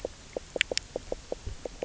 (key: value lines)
label: biophony, knock croak
recorder: SoundTrap 300